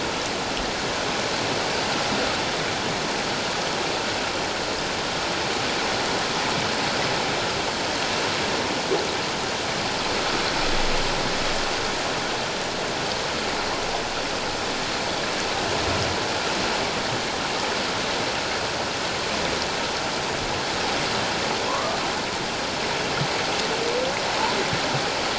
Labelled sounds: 21.7	22.0	humpback whale, 0.94 to 1.2 kHz

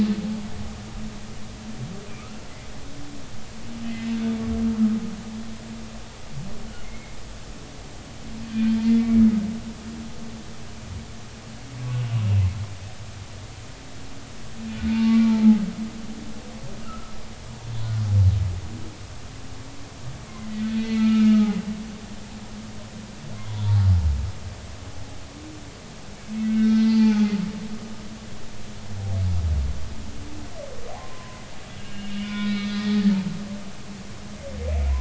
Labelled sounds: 6.8	7.2	humpback whale, 2.0 to 2.2 kHz
8.5	8.8	humpback whale, 1.5 to 1.6 kHz
14.9	15.2	humpback whale, 0.86 to 0.96 kHz
16.8	17.2	humpback whale, 1.2 to 1.4 kHz
20.3	21.5	humpback whale, 1.2 to 4.3 kHz
23.5	23.7	humpback whale, 3.3 to 3.6 kHz
26.5	27.3	humpback whale, 0.80 to 5.3 kHz
31.0	31.4	humpback whale, 0.96 to 1.1 kHz
31.8	32.8	humpback whale, 0.99 to 4.2 kHz

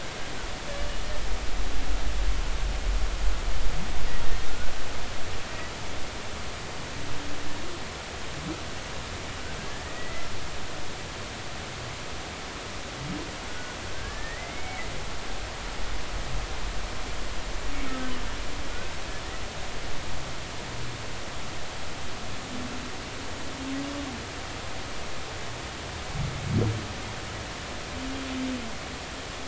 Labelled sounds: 9.6	10.3	humpback whale, 1.6 to 2.1 kHz
13.5	14.9	humpback whale, 1.4 to 2.3 kHz

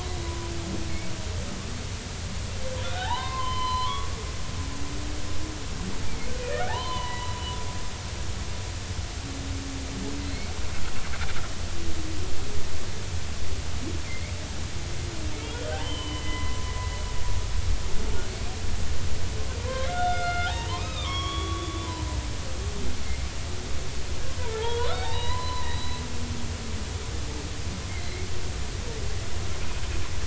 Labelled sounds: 2.8	4.1	humpback whale, 0.80 to 4.2 kHz
6.4	7.3	humpback whale, 0.80 to 4.2 kHz
10.3	10.5	humpback whale, 4.0 to 4.5 kHz
14.1	14.3	humpback whale, 2.0 to 2.4 kHz
15.7	16.7	humpback whale, 0.80 to 3.2 kHz
19.6	22.6	humpback whale, 0.80 to 5.7 kHz
24.4	26.0	humpback whale, 0.80 to 4.1 kHz
27.9	28.3	humpback whale, 2.0 to 2.3 kHz

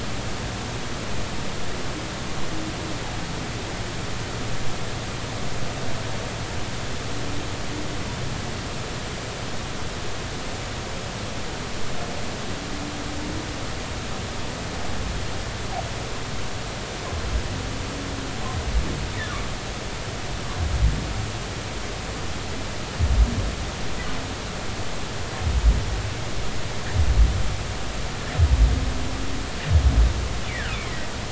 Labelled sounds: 30.7	31.1	humpback whale, 1.9 to 2.6 kHz

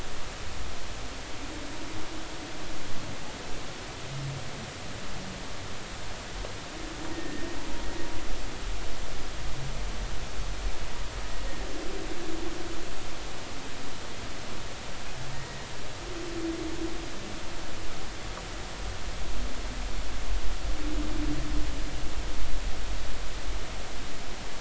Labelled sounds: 7.1	7.5	humpback whale, 1.8 to 1.9 kHz
15.3	15.7	humpback whale, 1.8 to 2.0 kHz

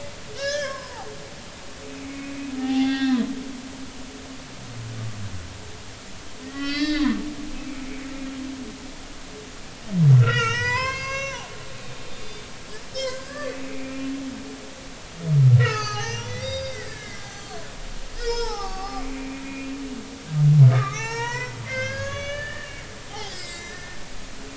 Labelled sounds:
0.3	1.1	humpback whale, 0.80 to 6.5 kHz
2.0	3.2	humpback whale, 0.80 to 4.3 kHz
6.4	8.0	humpback whale, 1.3 to 5.5 kHz
10.2	11.5	humpback whale, 0.80 to 7.9 kHz
12.2	14.1	humpback whale, 1.1 to 5.4 kHz
15.6	17.6	humpback whale, 0.80 to 6.5 kHz
18.2	19.7	humpback whale, 0.80 to 6.2 kHz
20.7	22.7	humpback whale, 0.83 to 7.0 kHz
23.3	24.0	humpback whale, 1.7 to 7.0 kHz

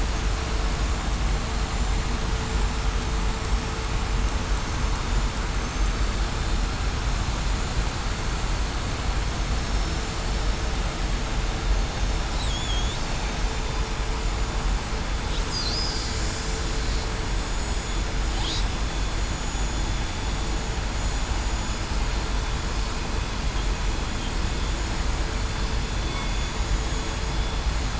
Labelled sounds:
0.7	1.1	vessel noise, 7.10 to 7.15 kHz
12.5	12.9	killer whale, southern resident, 3.2 to 3.6 kHz
17.5	18.1	vessel noise, 6.8 to 6.9 kHz
19.2	19.9	vessel noise, 6.75 to 6.84 kHz
26.0	26.4	vessel noise, 3.4 to 3.5 kHz

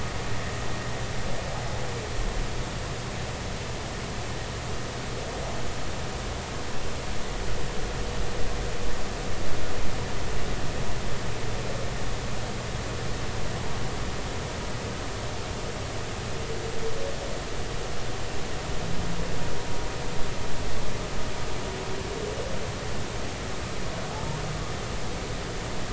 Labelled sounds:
24.1	24.4	humpback whale, 0.80 to 0.99 kHz

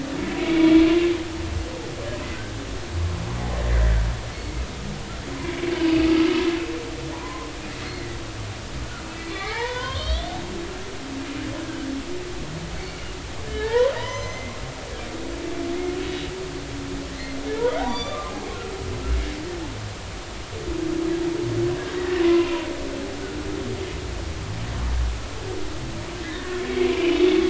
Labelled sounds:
0.4	0.8	humpback whale, 2.1 to 3.5 kHz
5.4	6.1	humpback whale, 2.2 to 2.7 kHz
7.1	7.5	humpback whale, 0.80 to 1.1 kHz
9.3	10.3	humpback whale, 0.80 to 4.6 kHz
11.6	11.9	humpback whale, 1.5 to 1.7 kHz
12.8	13.1	humpback whale, 2.0 to 2.4 kHz
13.5	14.6	humpback whale, 0.83 to 6.2 kHz
17.1	18.4	humpback whale, 0.80 to 6.0 kHz
22.0	22.5	humpback whale, 0.96 to 2.0 kHz
26.2	27.2	humpback whale, 1.6 to 3.0 kHz

